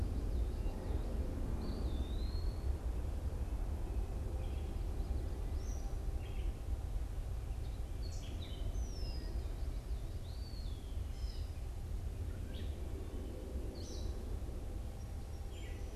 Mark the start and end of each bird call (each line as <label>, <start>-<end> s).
Eastern Wood-Pewee (Contopus virens), 1.4-2.8 s
unidentified bird, 4.2-6.6 s
Gray Catbird (Dumetella carolinensis), 7.9-15.9 s
Red-winged Blackbird (Agelaius phoeniceus), 8.6-9.4 s
Eastern Wood-Pewee (Contopus virens), 10.2-11.0 s